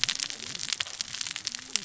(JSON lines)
{"label": "biophony, cascading saw", "recorder": "SoundTrap 600 or HydroMoth"}